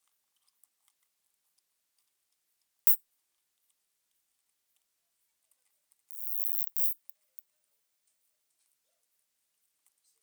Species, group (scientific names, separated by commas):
Isophya speciosa, Orthoptera